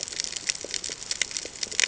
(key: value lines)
label: ambient
recorder: HydroMoth